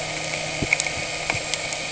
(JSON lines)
{"label": "anthrophony, boat engine", "recorder": "HydroMoth"}